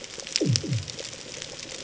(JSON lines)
{"label": "anthrophony, bomb", "recorder": "HydroMoth"}